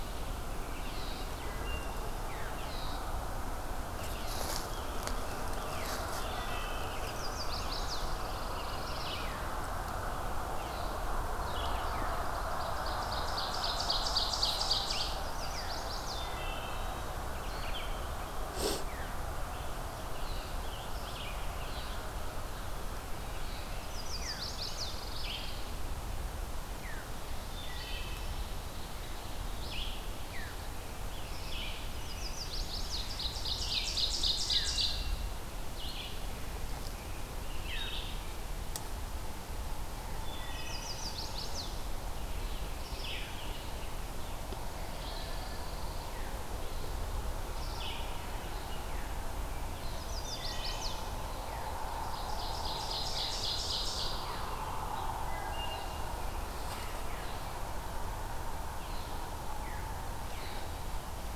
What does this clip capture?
Red-eyed Vireo, Wood Thrush, Chestnut-sided Warbler, Pine Warbler, Ovenbird, Veery